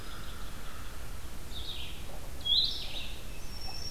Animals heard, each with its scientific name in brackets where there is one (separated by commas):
Blue-headed Vireo (Vireo solitarius), American Crow (Corvus brachyrhynchos), Black-throated Green Warbler (Setophaga virens)